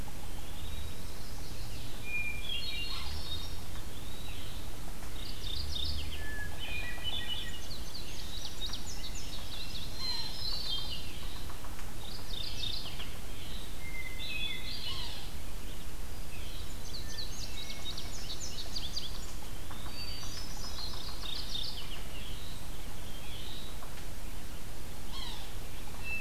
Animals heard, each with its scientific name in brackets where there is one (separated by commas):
Hermit Thrush (Catharus guttatus), Magnolia Warbler (Setophaga magnolia), Eastern Wood-Pewee (Contopus virens), Yellow-bellied Sapsucker (Sphyrapicus varius), Chestnut-sided Warbler (Setophaga pensylvanica), Indigo Bunting (Passerina cyanea), Red-eyed Vireo (Vireo olivaceus), Mourning Warbler (Geothlypis philadelphia)